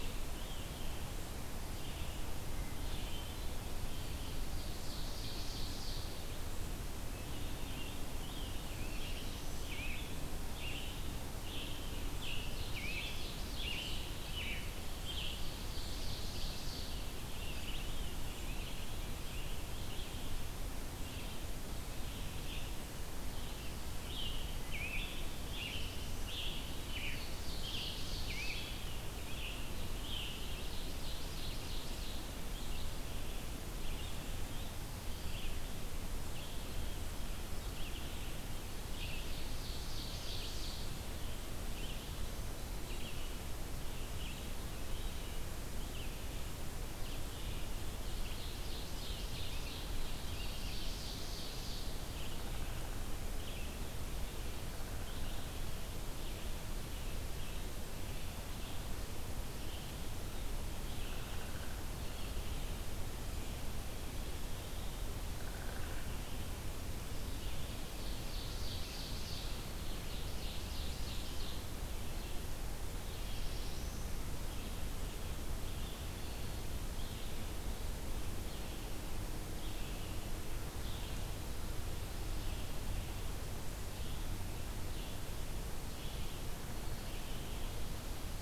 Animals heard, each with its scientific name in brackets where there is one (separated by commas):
Downy Woodpecker (Dryobates pubescens), Hermit Thrush (Catharus guttatus), Scarlet Tanager (Piranga olivacea), Red-eyed Vireo (Vireo olivaceus), Black-throated Blue Warbler (Setophaga caerulescens), Ovenbird (Seiurus aurocapilla)